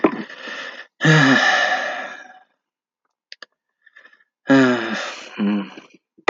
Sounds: Sigh